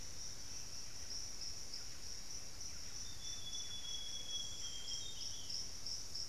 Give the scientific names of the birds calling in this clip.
Campylorhynchus turdinus, Cyanoloxia rothschildii